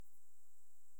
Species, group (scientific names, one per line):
Pholidoptera griseoaptera
Orthoptera